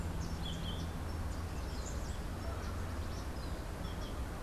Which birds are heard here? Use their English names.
Yellow-throated Euphonia